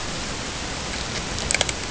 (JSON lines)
{"label": "ambient", "recorder": "HydroMoth"}